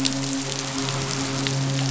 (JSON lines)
{"label": "biophony, midshipman", "recorder": "SoundTrap 500"}